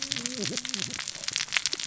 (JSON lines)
{"label": "biophony, cascading saw", "recorder": "SoundTrap 600 or HydroMoth"}